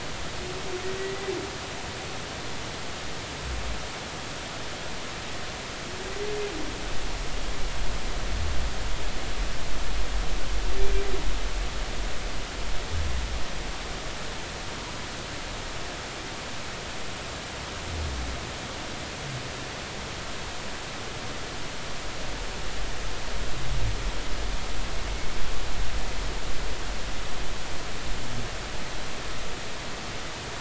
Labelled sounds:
1.0	1.2	humpback whale, 1.9 to 2.0 kHz

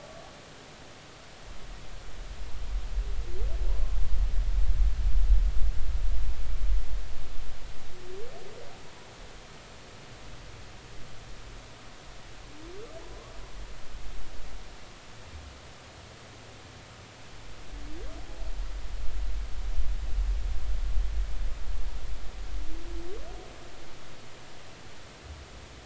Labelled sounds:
0.0	0.3	humpback whale, 1.1 to 1.2 kHz
13.1	13.4	humpback whale, 0.96 to 1.2 kHz

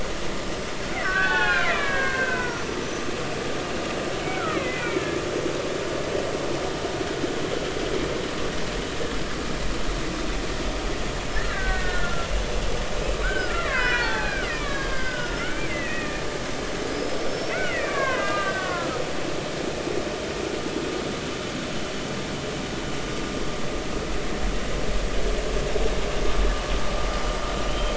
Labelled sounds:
0.9	2.8	killer whale, Bigg's (transient), 0.80 to 6.1 kHz
4.2	5.0	killer whale, Bigg's (transient), 1.1 to 2.4 kHz
5.8	6.0	killer whale, Bigg's (transient), 2.2 to 2.5 kHz
11.5	12.3	killer whale, Bigg's (transient), 1.3 to 2.0 kHz
13.2	16.2	killer whale, Bigg's (transient), 0.80 to 5.4 kHz
16.8	19.0	killer whale, Bigg's (transient), 0.96 to 5.6 kHz
27.7	27.9	killer whale, Bigg's (transient), 3.0 to 3.3 kHz

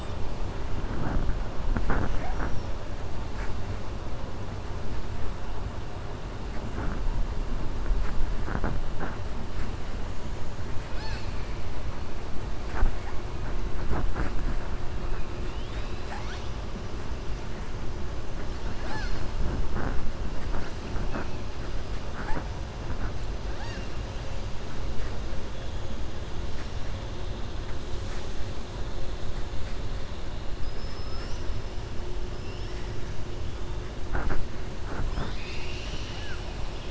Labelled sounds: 30.5	31.5	killer whale, 4.4 to 7.8 kHz

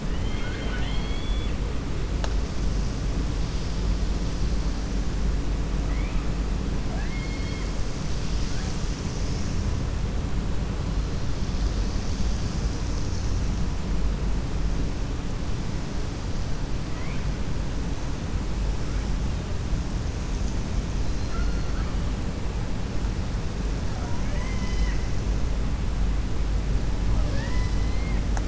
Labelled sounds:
0.0	1.6	killer whale, 0.73 to 4.4 kHz
6.8	7.7	killer whale, 0.66 to 4.5 kHz
21.0	21.6	killer whale, 4.0 to 5.1 kHz
23.9	25.0	killer whale, 0.65 to 6.6 kHz
27.1	28.4	killer whale, 0.56 to 5.7 kHz

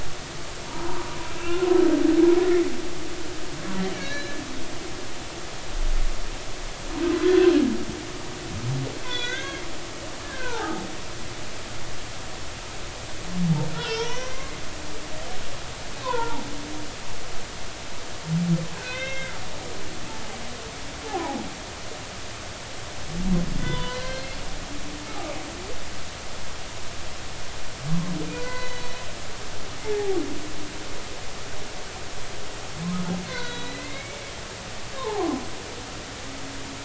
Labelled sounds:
0.6	1.1	humpback whale, 0.86 to 1.1 kHz
3.9	4.4	humpback whale, 1.6 to 4.1 kHz
7.2	7.5	humpback whale, 1.4 to 1.6 kHz
9.0	10.9	humpback whale, 0.80 to 4.5 kHz
13.7	14.6	humpback whale, 0.86 to 6.2 kHz
16.0	16.4	humpback whale, 0.80 to 1.5 kHz
18.8	19.3	humpback whale, 1.5 to 5.9 kHz
21.1	21.4	humpback whale, 0.80 to 1.1 kHz
23.6	24.4	humpback whale, 0.93 to 4.3 kHz
25.1	25.4	humpback whale, 1.1 to 1.3 kHz
28.3	29.0	humpback whale, 0.93 to 4.1 kHz
29.8	30.2	humpback whale, 0.80 to 0.93 kHz
33.2	34.3	humpback whale, 1.4 to 4.4 kHz
35.0	35.4	humpback whale, 0.80 to 1.2 kHz

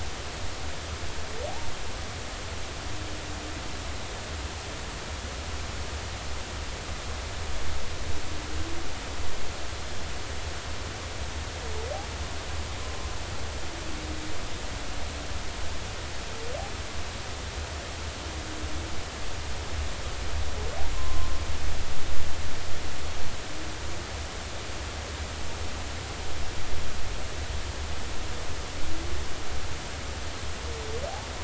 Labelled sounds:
12.8	13.1	humpback whale, 0.99 to 1.1 kHz
20.9	21.3	humpback whale, 0.99 to 1.1 kHz

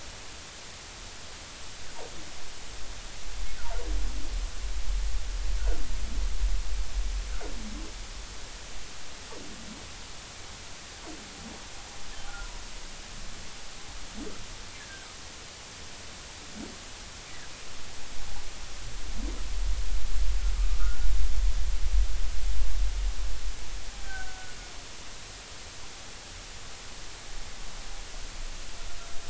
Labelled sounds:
14.8	15.1	humpback whale, 1.5 to 1.8 kHz
24.0	24.5	humpback whale, 1.4 to 1.6 kHz

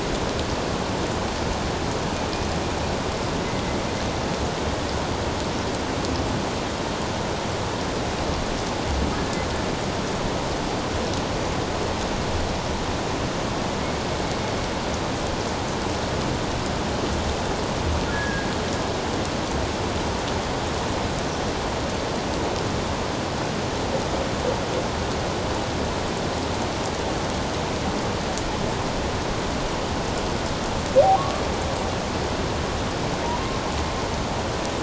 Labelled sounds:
18.1	18.5	humpback whale, 1.6 to 1.8 kHz
31.1	31.4	humpback whale, 0.91 to 1.2 kHz

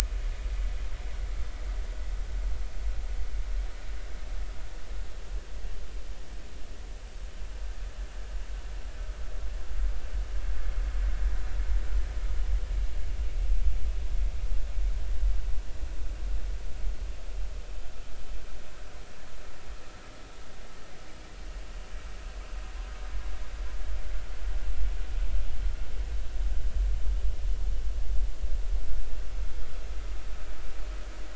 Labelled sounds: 0.0	0.3	vessel noise, 2.4 to 2.5 kHz

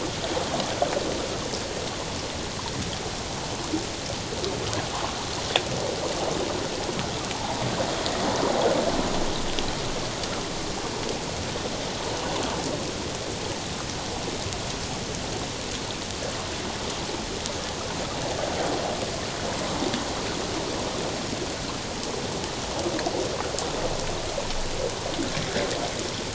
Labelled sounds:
7.3	7.6	water noise, 0.78 to 1.0 kHz

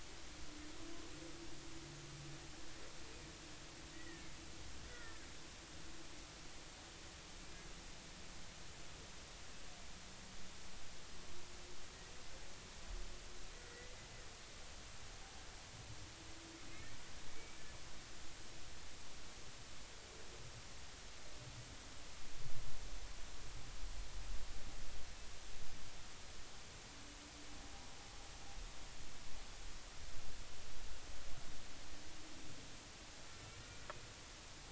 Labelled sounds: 3.9	4.3	humpback whale, 1.7 to 2.0 kHz
4.9	5.3	humpback whale, 1.3 to 2.0 kHz
13.7	13.9	humpback whale, 1.9 to 2.0 kHz
17.3	17.7	humpback whale, 2.2 to 2.4 kHz
33.6	33.9	humpback whale, 1.4 to 1.5 kHz

